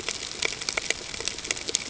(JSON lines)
{"label": "ambient", "recorder": "HydroMoth"}